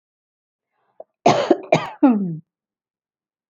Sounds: Cough